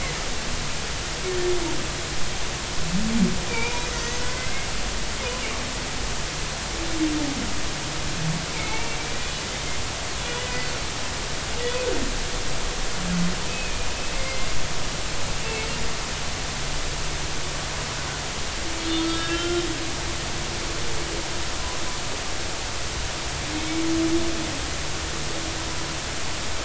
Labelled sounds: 3.5	4.7	humpback whale, 0.86 to 2.5 kHz
8.5	9.3	humpback whale, 2.1 to 2.8 kHz
10.2	10.7	humpback whale, 1.9 to 3.0 kHz
13.5	14.5	humpback whale, 2.0 to 2.6 kHz
18.8	19.6	humpback whale, 1.3 to 4.3 kHz
23.5	23.8	humpback whale, 2.1 to 2.3 kHz

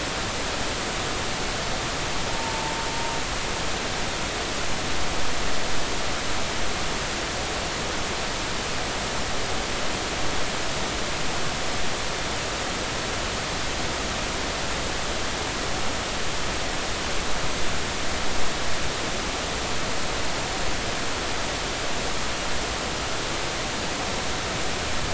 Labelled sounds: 2.3	2.7	humpback whale, 0.86 to 0.99 kHz

